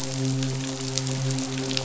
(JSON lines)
{"label": "biophony, midshipman", "recorder": "SoundTrap 500"}